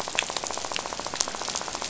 {"label": "biophony, rattle", "recorder": "SoundTrap 500"}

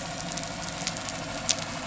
{"label": "anthrophony, boat engine", "recorder": "SoundTrap 300"}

